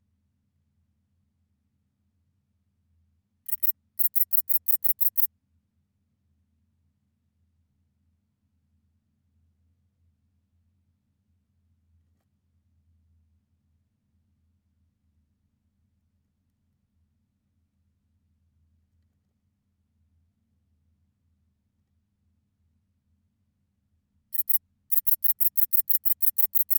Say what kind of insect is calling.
orthopteran